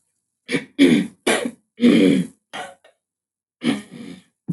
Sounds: Throat clearing